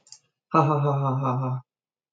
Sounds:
Laughter